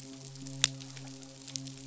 {"label": "biophony, midshipman", "recorder": "SoundTrap 500"}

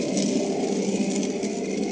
{"label": "anthrophony, boat engine", "recorder": "HydroMoth"}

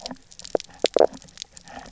{"label": "biophony, knock croak", "recorder": "SoundTrap 300"}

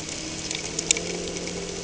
{"label": "anthrophony, boat engine", "recorder": "HydroMoth"}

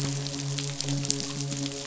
{"label": "biophony, midshipman", "recorder": "SoundTrap 500"}
{"label": "biophony", "recorder": "SoundTrap 500"}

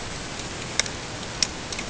{"label": "ambient", "recorder": "HydroMoth"}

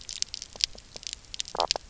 {"label": "biophony, knock croak", "recorder": "SoundTrap 300"}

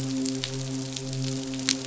{"label": "biophony, midshipman", "recorder": "SoundTrap 500"}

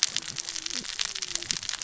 {"label": "biophony, cascading saw", "recorder": "SoundTrap 600 or HydroMoth"}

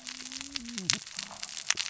{"label": "biophony, cascading saw", "recorder": "SoundTrap 600 or HydroMoth"}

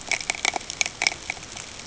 {"label": "ambient", "recorder": "HydroMoth"}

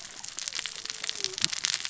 {"label": "biophony, cascading saw", "recorder": "SoundTrap 600 or HydroMoth"}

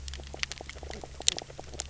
{"label": "biophony, knock croak", "recorder": "SoundTrap 300"}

